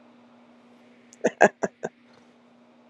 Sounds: Laughter